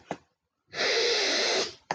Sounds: Sniff